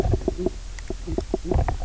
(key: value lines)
label: biophony, knock croak
recorder: SoundTrap 300